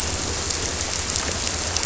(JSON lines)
{"label": "biophony", "recorder": "SoundTrap 300"}